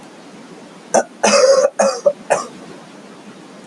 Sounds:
Cough